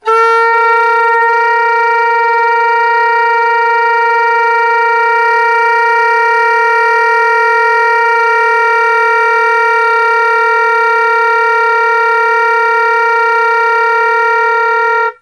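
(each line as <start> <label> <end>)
0.0 A saxophone player loudly plays a single sustained note for an extended period. 15.1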